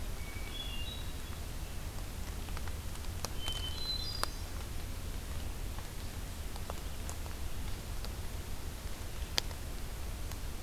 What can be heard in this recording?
Hermit Thrush